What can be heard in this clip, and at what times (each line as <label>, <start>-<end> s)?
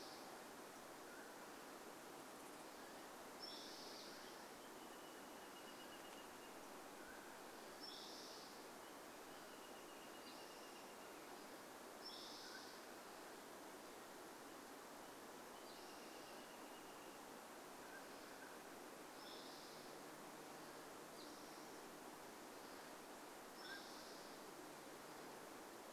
Mountain Quail call, 0-4 s
Spotted Towhee song, 0-26 s
unidentified sound, 4-6 s
Wrentit song, 4-12 s
Mountain Quail call, 6-8 s
Mountain Quail call, 12-14 s
Wrentit song, 14-18 s
Mountain Quail call, 16-20 s
Mountain Quail call, 22-24 s